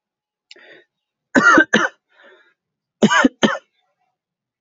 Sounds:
Cough